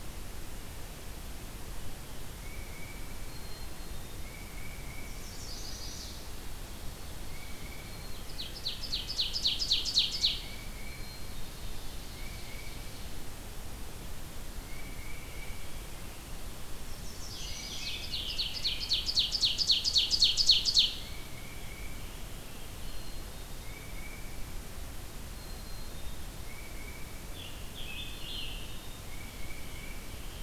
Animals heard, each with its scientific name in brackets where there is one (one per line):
Black-capped Chickadee (Poecile atricapillus)
Tufted Titmouse (Baeolophus bicolor)
Ovenbird (Seiurus aurocapilla)
Scarlet Tanager (Piranga olivacea)
Chestnut-sided Warbler (Setophaga pensylvanica)